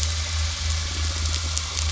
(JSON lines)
{"label": "biophony", "recorder": "SoundTrap 500"}